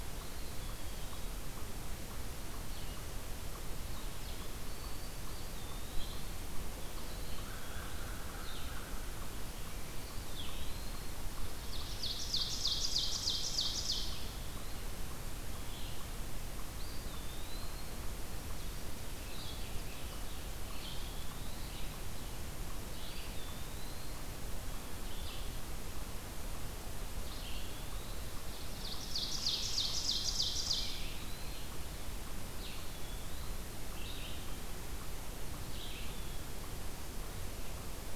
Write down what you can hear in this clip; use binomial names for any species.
Contopus virens, Vireo olivaceus, Setophaga virens, Corvus brachyrhynchos, Seiurus aurocapilla, Piranga olivacea